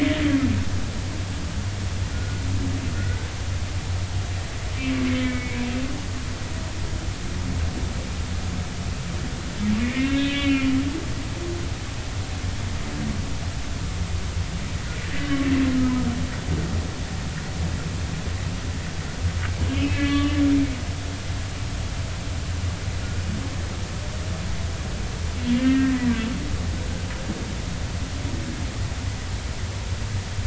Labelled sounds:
2.1	3.3	humpback whale, 1.3 to 2.0 kHz
5.2	5.7	humpback whale, 1.9 to 2.5 kHz
9.8	10.8	humpback whale, 1.6 to 3.2 kHz
15.0	15.3	humpback whale, 1.8 to 2.1 kHz
19.6	20.3	humpback whale, 1.1 to 3.1 kHz
25.6	25.9	humpback whale, 1.3 to 1.9 kHz

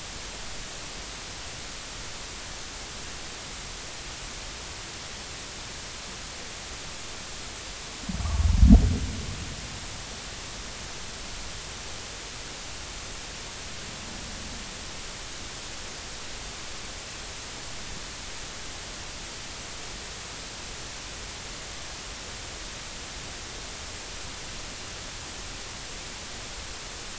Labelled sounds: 8.2	8.5	humpback whale, 1.1 to 1.2 kHz

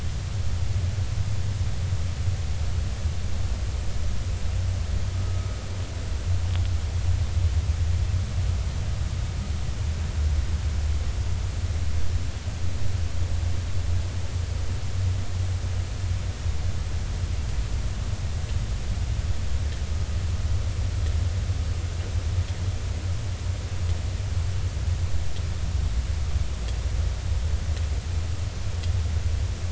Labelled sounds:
5.3	5.5	vessel noise, 1.2 to 1.3 kHz

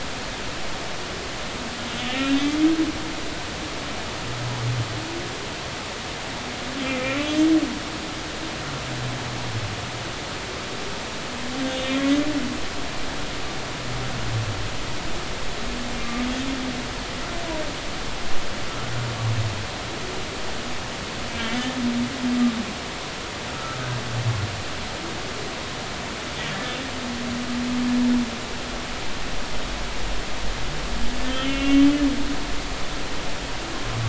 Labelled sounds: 2.0	2.6	humpback whale, 1.7 to 3.3 kHz
7.2	7.5	humpback whale, 2.9 to 3.2 kHz
11.7	12.1	humpback whale, 2.8 to 3.8 kHz
21.3	21.5	humpback whale, 2.2 to 2.4 kHz
23.5	23.9	humpback whale, 1.2 to 1.4 kHz
31.4	31.9	humpback whale, 2.1 to 3.1 kHz

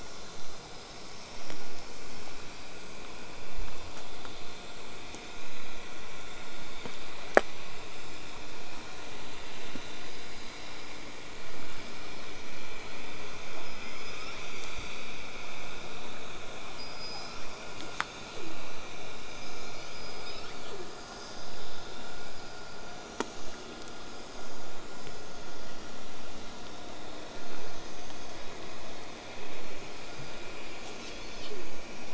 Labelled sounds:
13.6	14.4	killer whale, southern resident, L pod, call S19, 0.97 to 8.0 kHz
16.7	17.5	killer whale, southern resident, L pod, call S19, 0.58 to 8.0 kHz
17.8	18.6	killer whale, southern resident, 0.08 to 8.0 kHz
19.4	20.8	killer whale, southern resident, L pod, call S19, 0.29 to 7.0 kHz
30.7	31.7	killer whale, southern resident, L pod, call S40, 0.27 to 8.0 kHz

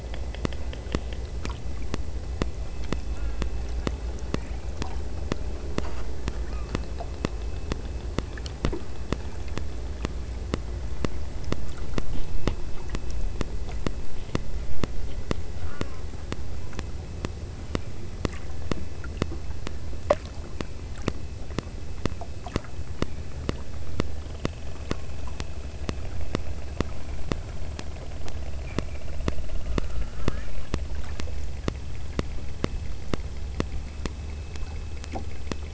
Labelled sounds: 3.1	3.7	killer whale, southern Alaska resident, 1.0 to 2.4 kHz
6.5	6.9	killer whale, southern Alaska resident, 1.0 to 2.5 kHz
15.6	16.2	killer whale, southern Alaska resident, 0.78 to 3.0 kHz

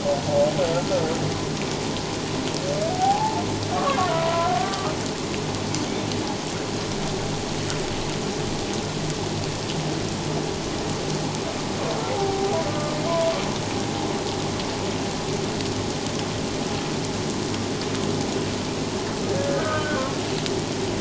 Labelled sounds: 2.9	3.4	humpback whale, 0.78 to 1.0 kHz
4.0	4.9	humpback whale, 0.94 to 1.6 kHz
12.1	12.6	humpback whale, 0.78 to 0.84 kHz
19.6	20.0	humpback whale, 1.4 to 1.6 kHz

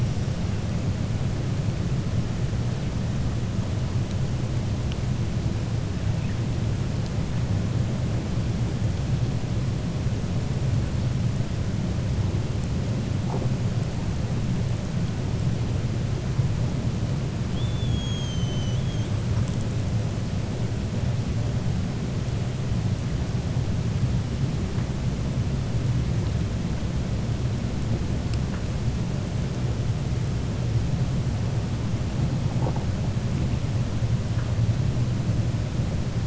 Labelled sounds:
17.4	19.1	killer whale, 3.0 to 6.7 kHz

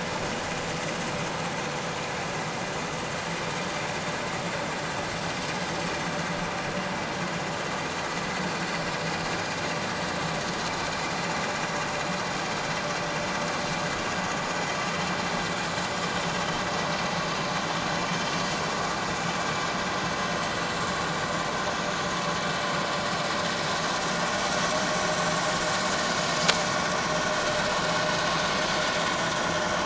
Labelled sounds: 28.5	28.8	vessel noise, 6.1 to 6.3 kHz

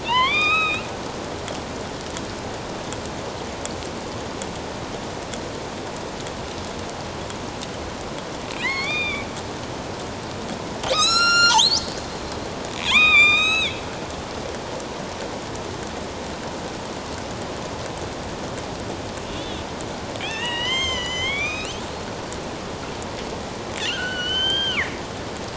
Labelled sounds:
0.0	0.9	killer whale, northern resident, A clan, AB subclan, 0.88 to 5.2 kHz
8.6	9.3	killer whale, northern resident, A clan, AB subclan, 0.88 to 4.9 kHz
10.9	12.0	killer whale, northern resident, A clan, AB subclan, 1.1 to 8.0 kHz
12.8	13.8	killer whale, northern resident, A clan, AB subclan, 0.88 to 7.9 kHz
19.3	21.8	killer whale, northern resident, A clan, AB subclan, 0.97 to 7.5 kHz
23.8	25.0	killer whale, northern resident, A clan, AB subclan, 1.3 to 6.4 kHz

